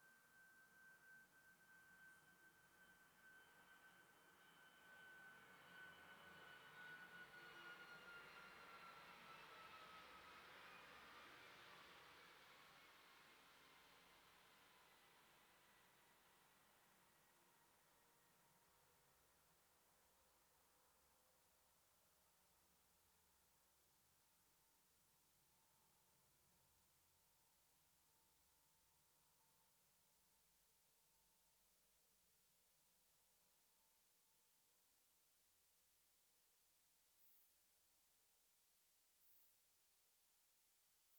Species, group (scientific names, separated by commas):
Isophya modesta, Orthoptera